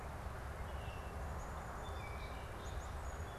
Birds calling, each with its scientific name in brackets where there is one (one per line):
Baltimore Oriole (Icterus galbula)
Northern Cardinal (Cardinalis cardinalis)
Song Sparrow (Melospiza melodia)